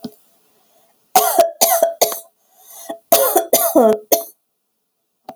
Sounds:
Cough